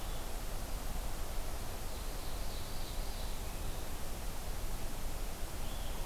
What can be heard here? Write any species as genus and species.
Vireo solitarius, Seiurus aurocapilla